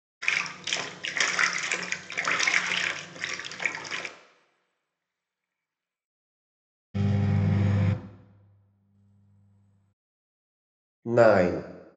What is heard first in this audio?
bathtub